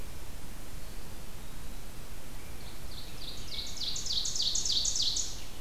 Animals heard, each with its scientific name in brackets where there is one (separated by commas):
Ovenbird (Seiurus aurocapilla), Eastern Wood-Pewee (Contopus virens), Rose-breasted Grosbeak (Pheucticus ludovicianus)